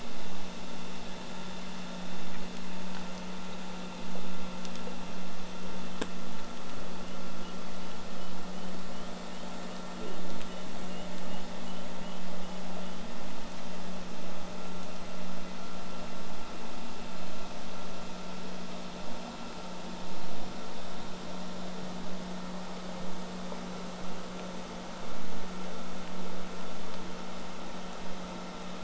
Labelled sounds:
0.0	5.0	vessel noise, 0 to 8.0 kHz
7.0	13.0	killer whale, southern resident, J pod, whistle, 2.5 to 3.6 kHz

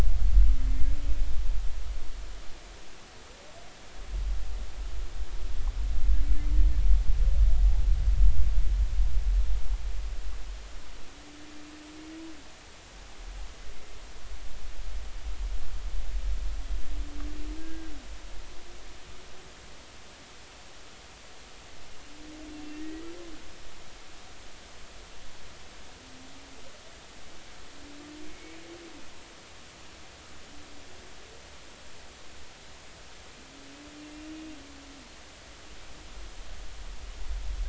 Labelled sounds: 17.6	17.9	humpback whale, 1.5 to 1.7 kHz
22.7	23.0	humpback whale, 1.8 to 2.0 kHz
28.3	28.6	humpback whale, 2.1 to 2.3 kHz

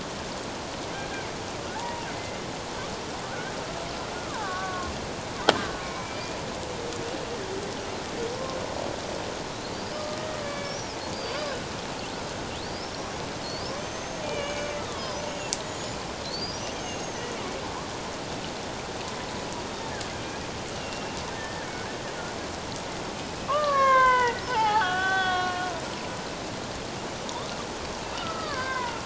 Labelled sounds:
1.7	2.4	killer whale, Bigg's (transient), 0.78 to 2.2 kHz
3.2	6.4	killer whale, Bigg's (transient), 0.78 to 2.6 kHz
9.9	10.8	killer whale, Bigg's (transient), 1.2 to 2.3 kHz
11.1	11.5	killer whale, Bigg's (transient), 4.6 to 5.0 kHz
12.6	13.2	killer whale, Bigg's (transient), 4.2 to 5.8 kHz
13.4	16.0	killer whale, Bigg's (transient), 0.88 to 7.1 kHz
16.2	17.2	killer whale, Bigg's (transient), 2.7 to 6.7 kHz
20.7	21.7	killer whale, Bigg's (transient), 1.6 to 5.6 kHz
23.5	25.8	killer whale, Bigg's (transient), 0.78 to 4.6 kHz
27.3	29.0	killer whale, Bigg's (transient), 0.88 to 2.2 kHz

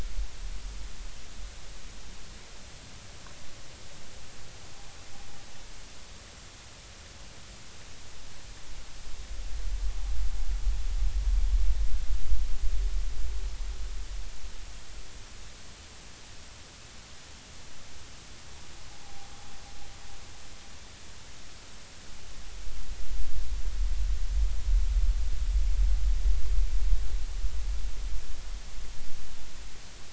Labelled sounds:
19.0	19.3	vessel noise, 0.80 to 0.93 kHz

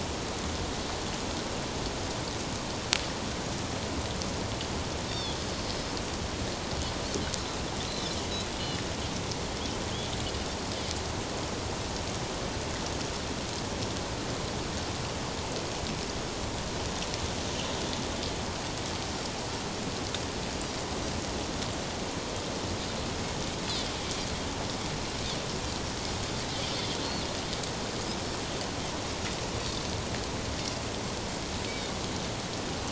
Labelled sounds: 5.1	5.4	Pacific white-sided dolphin, 3.3 to 3.8 kHz
31.7	31.9	Pacific white-sided dolphin, 2.1 to 2.3 kHz

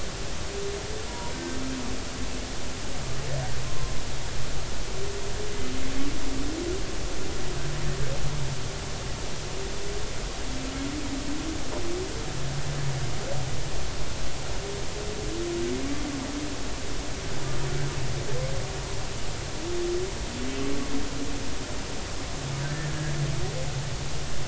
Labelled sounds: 1.1	1.6	humpback whale, 0.90 to 1.6 kHz

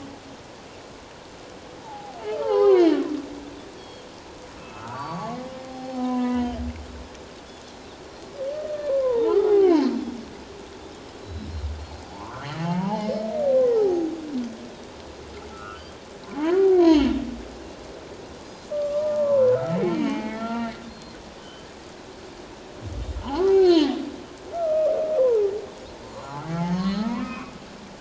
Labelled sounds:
1.8	2.9	humpback whale, 0.78 to 4.6 kHz
3.8	4.1	Pacific white-sided dolphin, 3.1 to 4.6 kHz
4.6	6.6	humpback whale, 0.78 to 5.5 kHz
8.9	9.7	humpback whale, 0.78 to 1.4 kHz
11.2	11.5	Pacific white-sided dolphin, 3.8 to 4.1 kHz
12.1	13.1	humpback whale, 0.78 to 3.1 kHz
13.7	14.0	humpback whale, 0.78 to 0.91 kHz
15.5	15.9	humpback whale, 1.2 to 1.6 kHz
16.5	17.2	humpback whale, 0.78 to 4.5 kHz
18.7	20.8	humpback whale, 0.94 to 3.1 kHz
20.9	21.6	Pacific white-sided dolphin, 2.9 to 4.3 kHz
23.2	24.0	humpback whale, 0.78 to 4.6 kHz
24.5	25.5	humpback whale, 0.78 to 2.6 kHz
26.0	27.5	humpback whale, 0.81 to 4.6 kHz
26.1	26.4	Pacific white-sided dolphin, 3.9 to 4.2 kHz

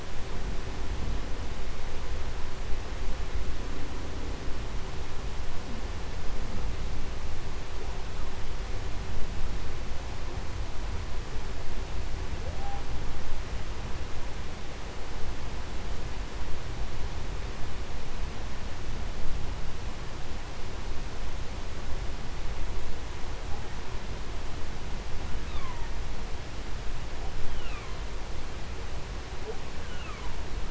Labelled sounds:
12.0	13.1	humpback whale, 0.07 to 1.2 kHz
27.0	28.3	humpback whale, 0.13 to 5.4 kHz
29.2	30.6	humpback whale, 0.15 to 3.8 kHz

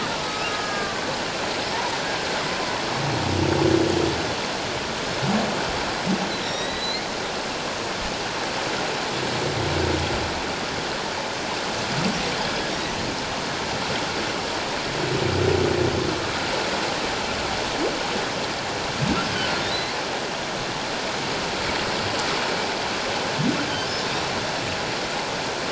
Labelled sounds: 0.1	1.1	killer whale, Bigg's (transient), 1.0 to 3.9 kHz
1.8	2.1	humpback whale, 5.8 to 6.0 kHz
6.4	7.0	humpback whale, 1.8 to 5.8 kHz

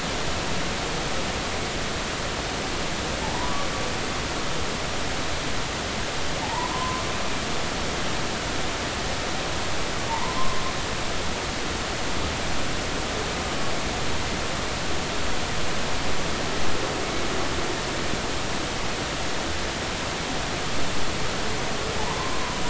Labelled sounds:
3.2	3.5	humpback whale, 0.80 to 1.0 kHz
6.4	7.0	humpback whale, 0.80 to 1.1 kHz
10.1	10.6	humpback whale, 0.83 to 1.2 kHz
17.0	17.3	humpback whale, 2.1 to 2.3 kHz
22.0	22.6	humpback whale, 0.80 to 1.1 kHz

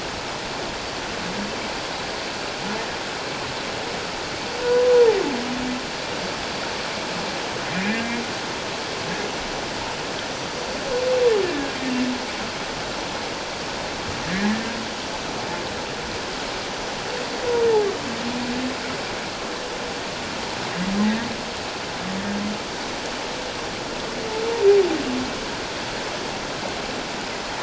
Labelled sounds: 4.6	4.9	humpback whale, 0.94 to 1.0 kHz
7.7	8.0	humpback whale, 2.3 to 2.6 kHz
14.3	14.6	humpback whale, 1.6 to 2.0 kHz
21.0	21.3	humpback whale, 1.8 to 2.0 kHz

